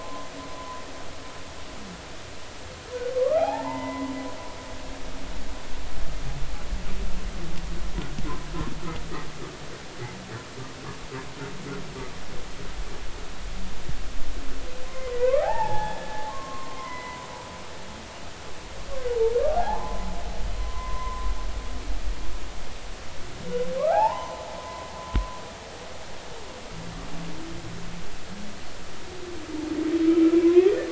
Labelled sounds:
0.3	0.6	humpback whale, 1.9 to 2.1 kHz
3.2	4.1	humpback whale, 0.80 to 2.1 kHz
14.8	17.3	humpback whale, 0.80 to 3.5 kHz
19.5	20.1	humpback whale, 0.80 to 1.1 kHz
20.6	21.3	humpback whale, 0.96 to 1.2 kHz
23.8	24.9	humpback whale, 0.80 to 6.2 kHz
30.4	30.7	humpback whale, 0.96 to 1.2 kHz

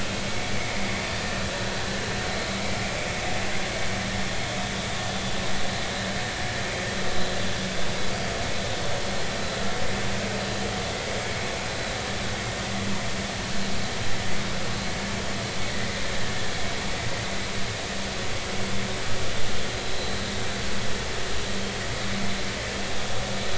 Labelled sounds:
0.3	0.5	vessel noise, 2.1 to 2.3 kHz
20.0	20.2	vessel noise, 3.9 to 4.1 kHz

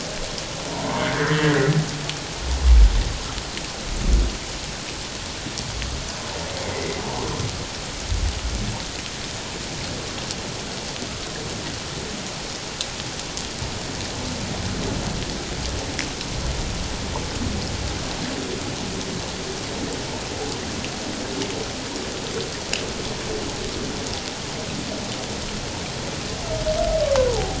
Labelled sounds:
0.8	1.6	humpback whale, 1.5 to 2.2 kHz
6.6	7.0	humpback whale, 1.9 to 2.2 kHz
27.3	27.5	humpback whale, 0.78 to 1.0 kHz

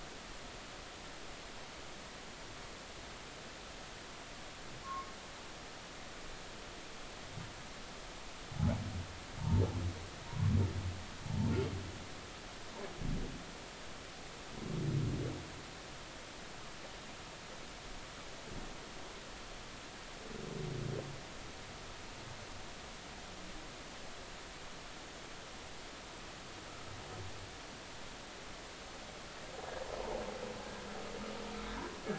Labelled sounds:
4.8	5.1	humpback whale, 1.0 to 1.2 kHz
9.4	9.6	humpback whale, 0.86 to 1.1 kHz

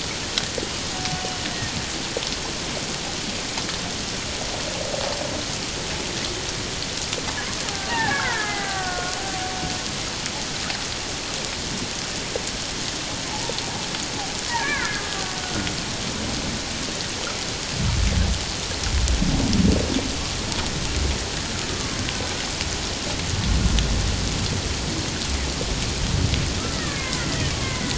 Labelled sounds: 7.9	9.2	killer whale, Bigg's (transient), 0.78 to 2.2 kHz
13.3	13.6	killer whale, Bigg's (transient), 0.78 to 1.0 kHz
14.5	15.7	killer whale, Bigg's (transient), 0.97 to 2.4 kHz
26.7	27.9	killer whale, Bigg's (transient), 0.97 to 2.3 kHz

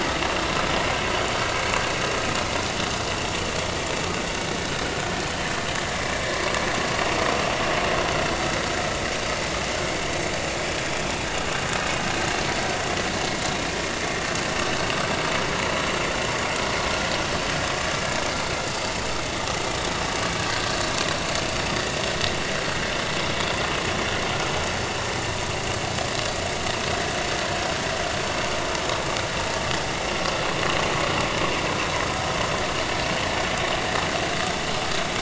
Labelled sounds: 20.5	20.7	vessel noise, 1.5 to 1.7 kHz

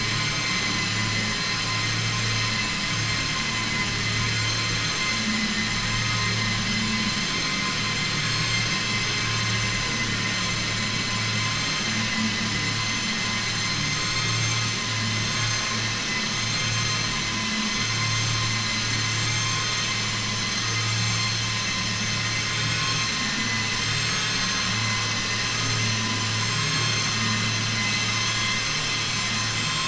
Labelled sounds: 23.2	24.6	vessel noise, 1.0 to 8.0 kHz

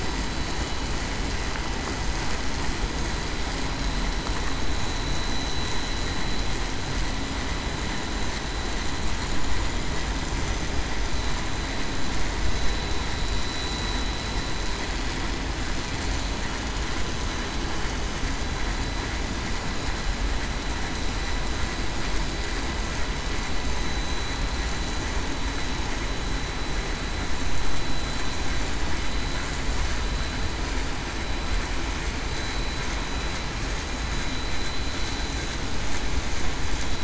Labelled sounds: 13.7	14.1	vessel noise, 3.87 to 3.94 kHz

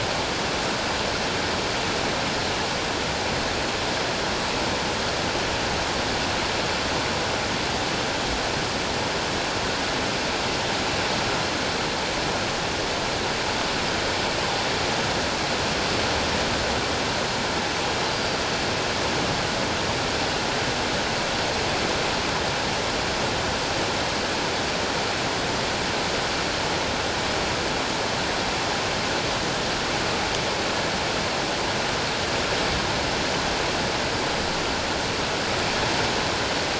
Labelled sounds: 18.1	18.4	Pacific white-sided dolphin, 4.6 to 4.9 kHz

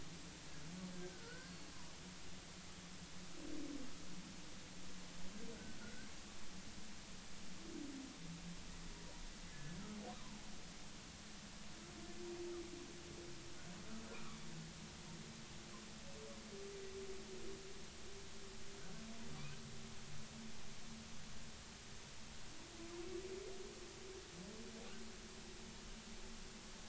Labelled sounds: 0.9	1.7	humpback whale, 1.3 to 4.5 kHz
5.8	6.1	humpback whale, 1.3 to 1.6 kHz
9.5	9.8	humpback whale, 1.7 to 1.8 kHz

